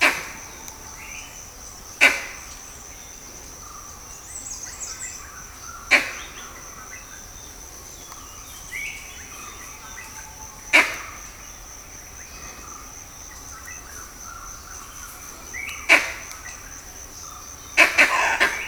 Is there more than one animal calling out?
yes